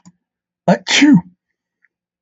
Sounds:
Sneeze